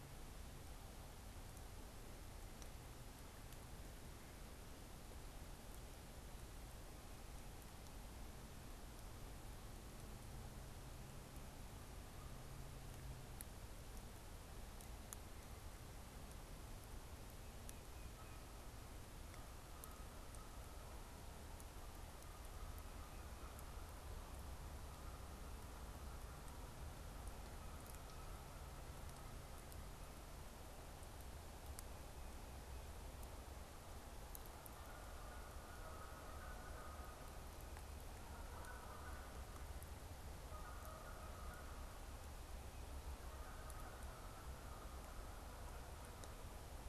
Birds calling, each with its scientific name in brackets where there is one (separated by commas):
Tufted Titmouse (Baeolophus bicolor), Canada Goose (Branta canadensis)